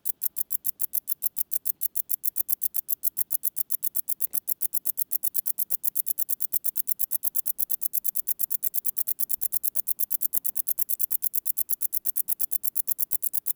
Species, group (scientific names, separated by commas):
Decticus verrucivorus, Orthoptera